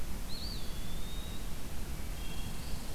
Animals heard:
Wood Thrush (Hylocichla mustelina)
Eastern Wood-Pewee (Contopus virens)
Red Squirrel (Tamiasciurus hudsonicus)

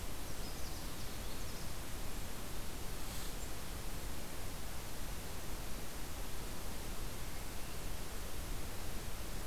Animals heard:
Canada Warbler (Cardellina canadensis)

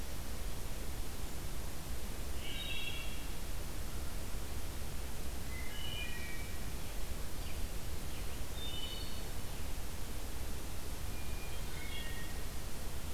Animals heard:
Wood Thrush (Hylocichla mustelina)

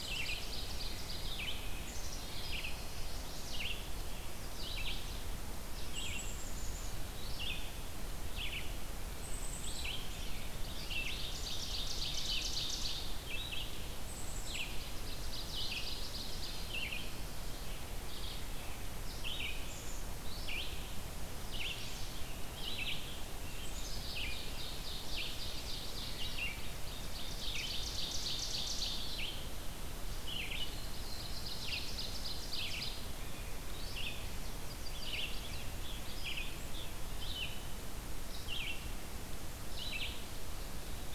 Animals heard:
Chestnut-sided Warbler (Setophaga pensylvanica)
Black-throated Blue Warbler (Setophaga caerulescens)
Red-eyed Vireo (Vireo olivaceus)
Black-capped Chickadee (Poecile atricapillus)
Scarlet Tanager (Piranga olivacea)
Ovenbird (Seiurus aurocapilla)

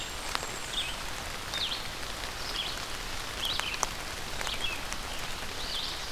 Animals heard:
Black-and-white Warbler (Mniotilta varia)
Red-eyed Vireo (Vireo olivaceus)

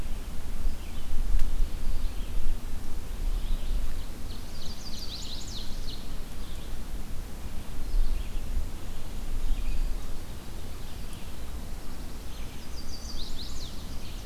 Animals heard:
Black-throated Blue Warbler (Setophaga caerulescens)
Chestnut-sided Warbler (Setophaga pensylvanica)
Red-eyed Vireo (Vireo olivaceus)
Ovenbird (Seiurus aurocapilla)

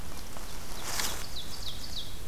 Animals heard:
Ovenbird (Seiurus aurocapilla)

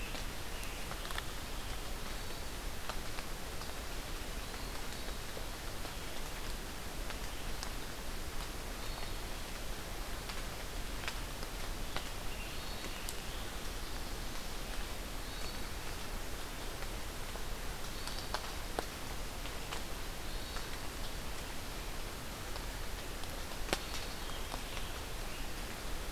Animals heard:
Scarlet Tanager (Piranga olivacea)
Hermit Thrush (Catharus guttatus)

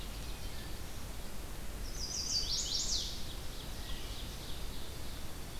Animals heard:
Dark-eyed Junco (Junco hyemalis)
Chestnut-sided Warbler (Setophaga pensylvanica)
Ovenbird (Seiurus aurocapilla)
Red-eyed Vireo (Vireo olivaceus)

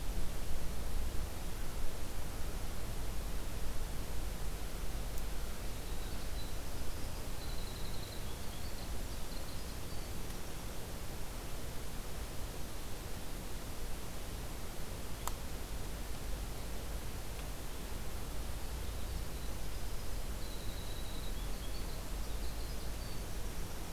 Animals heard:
Winter Wren (Troglodytes hiemalis)

